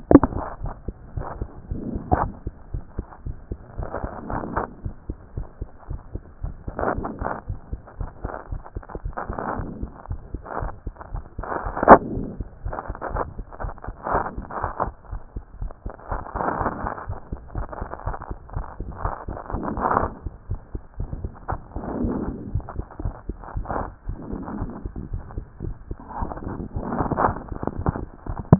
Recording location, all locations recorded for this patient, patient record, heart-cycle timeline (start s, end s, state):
mitral valve (MV)
aortic valve (AV)+pulmonary valve (PV)+tricuspid valve (TV)+mitral valve (MV)
#Age: Child
#Sex: Male
#Height: 115.0 cm
#Weight: 22.8 kg
#Pregnancy status: False
#Murmur: Absent
#Murmur locations: nan
#Most audible location: nan
#Systolic murmur timing: nan
#Systolic murmur shape: nan
#Systolic murmur grading: nan
#Systolic murmur pitch: nan
#Systolic murmur quality: nan
#Diastolic murmur timing: nan
#Diastolic murmur shape: nan
#Diastolic murmur grading: nan
#Diastolic murmur pitch: nan
#Diastolic murmur quality: nan
#Outcome: Normal
#Campaign: 2014 screening campaign
0.00	0.12	systole
0.12	0.22	S2
0.22	0.26	diastole
0.26	0.28	S1
0.28	0.36	systole
0.36	0.42	S2
0.42	0.62	diastole
0.62	0.74	S1
0.74	0.86	systole
0.86	0.94	S2
0.94	1.16	diastole
1.16	1.26	S1
1.26	1.38	systole
1.38	1.48	S2
1.48	1.70	diastole
1.70	1.82	S1
1.82	1.90	systole
1.90	2.00	S2
2.00	2.18	diastole
2.18	2.30	S1
2.30	2.44	systole
2.44	2.52	S2
2.52	2.72	diastole
2.72	2.82	S1
2.82	2.96	systole
2.96	3.06	S2
3.06	3.26	diastole
3.26	3.36	S1
3.36	3.50	systole
3.50	3.58	S2
3.58	3.78	diastole
3.78	3.88	S1
3.88	4.02	systole
4.02	4.10	S2
4.10	4.30	diastole
4.30	4.42	S1
4.42	4.56	systole
4.56	4.66	S2
4.66	4.84	diastole
4.84	4.94	S1
4.94	5.08	systole
5.08	5.16	S2
5.16	5.36	diastole
5.36	5.46	S1
5.46	5.60	systole
5.60	5.68	S2
5.68	5.90	diastole
5.90	6.00	S1
6.00	6.12	systole
6.12	6.22	S2
6.22	6.42	diastole
6.42	6.54	S1
6.54	6.66	systole
6.66	6.74	S2
6.74	6.94	diastole
6.94	7.06	S1
7.06	7.20	systole
7.20	7.30	S2
7.30	7.48	diastole
7.48	7.58	S1
7.58	7.72	systole
7.72	7.80	S2
7.80	7.98	diastole
7.98	8.10	S1
8.10	8.22	systole
8.22	8.32	S2
8.32	8.50	diastole
8.50	8.62	S1
8.62	8.74	systole
8.74	8.84	S2
8.84	9.04	diastole
9.04	9.14	S1
9.14	9.28	systole
9.28	9.36	S2
9.36	9.56	diastole
9.56	9.68	S1
9.68	9.80	systole
9.80	9.90	S2
9.90	10.10	diastole
10.10	10.20	S1
10.20	10.32	systole
10.32	10.42	S2
10.42	10.60	diastole
10.60	10.72	S1
10.72	10.86	systole
10.86	10.94	S2
10.94	11.12	diastole
11.12	11.24	S1
11.24	11.38	systole
11.38	11.46	S2
11.46	11.64	diastole
11.64	11.74	S1
11.74	11.86	systole
11.86	12.00	S2
12.00	12.14	diastole
12.14	12.28	S1
12.28	12.38	systole
12.38	12.44	S2
12.44	12.64	diastole
12.64	12.76	S1
12.76	12.88	systole
12.88	12.96	S2
12.96	13.12	diastole
13.12	13.24	S1
13.24	13.36	systole
13.36	13.46	S2
13.46	13.62	diastole
13.62	13.74	S1
13.74	13.86	systole
13.86	13.94	S2
13.94	14.12	diastole
14.12	14.24	S1
14.24	14.36	systole
14.36	14.46	S2
14.46	14.62	diastole
14.62	14.72	S1
14.72	14.84	systole
14.84	14.94	S2
14.94	15.10	diastole
15.10	15.20	S1
15.20	15.34	systole
15.34	15.44	S2
15.44	15.60	diastole
15.60	15.72	S1
15.72	15.84	systole
15.84	15.92	S2
15.92	16.10	diastole
16.10	16.22	S1
16.22	16.34	systole
16.34	16.44	S2
16.44	16.60	diastole
16.60	16.72	S1
16.72	16.82	systole
16.82	16.92	S2
16.92	17.08	diastole
17.08	17.18	S1
17.18	17.30	systole
17.30	17.38	S2
17.38	17.56	diastole
17.56	17.68	S1
17.68	17.80	systole
17.80	17.88	S2
17.88	18.06	diastole
18.06	18.16	S1
18.16	18.28	systole
18.28	18.38	S2
18.38	18.54	diastole
18.54	18.66	S1
18.66	18.80	systole
18.80	18.88	S2
18.88	19.02	diastole
19.02	19.14	S1
19.14	19.28	systole
19.28	19.38	S2
19.38	19.54	diastole
19.54	19.66	S1
19.66	19.72	systole
19.72	19.82	S2
19.82	19.96	diastole
19.96	20.10	S1
20.10	20.24	systole
20.24	20.32	S2
20.32	20.50	diastole
20.50	20.60	S1
20.60	20.74	systole
20.74	20.82	S2
20.82	21.02	diastole
21.02	21.10	S1
21.10	21.20	systole
21.20	21.32	S2
21.32	21.52	diastole
21.52	21.60	S1
21.60	21.74	systole
21.74	21.84	S2
21.84	21.98	diastole
21.98	22.14	S1
22.14	22.22	systole
22.22	22.34	S2
22.34	22.52	diastole
22.52	22.64	S1
22.64	22.76	systole
22.76	22.86	S2
22.86	23.02	diastole
23.02	23.14	S1
23.14	23.28	systole
23.28	23.36	S2
23.36	23.56	diastole
23.56	23.66	S1
23.66	23.78	systole
23.78	23.88	S2
23.88	24.08	diastole
24.08	24.18	S1
24.18	24.30	systole
24.30	24.40	S2
24.40	24.58	diastole
24.58	24.70	S1
24.70	24.84	systole
24.84	24.92	S2
24.92	25.12	diastole
25.12	25.22	S1
25.22	25.36	systole
25.36	25.44	S2
25.44	25.64	diastole
25.64	25.76	S1
25.76	25.88	systole
25.88	25.98	S2
25.98	26.20	diastole
26.20	26.32	S1
26.32	26.46	systole
26.46	26.56	S2
26.56	26.78	diastole
26.78	26.88	S1
26.88	26.96	systole
26.96	27.06	S2
27.06	27.22	diastole
27.22	27.36	S1
27.36	27.50	systole
27.50	27.58	S2
27.58	27.78	diastole
27.78	27.92	S1
27.92	28.00	systole
28.00	28.06	S2
28.06	28.28	diastole
28.28	28.38	S1
28.38	28.50	systole
28.50	28.59	S2